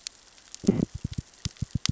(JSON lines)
{"label": "biophony, knock", "recorder": "SoundTrap 600 or HydroMoth"}